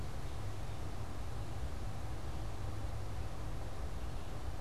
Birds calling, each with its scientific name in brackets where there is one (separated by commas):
unidentified bird